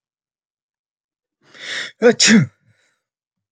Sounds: Sneeze